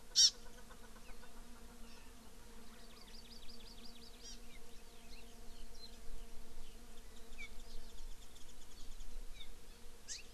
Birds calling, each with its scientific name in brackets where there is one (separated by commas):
Hawaii Amakihi (Chlorodrepanis virens), Chukar (Alectoris chukar), Warbling White-eye (Zosterops japonicus)